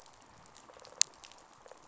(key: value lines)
label: biophony, rattle response
recorder: SoundTrap 500